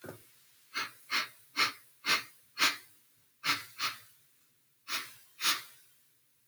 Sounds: Sniff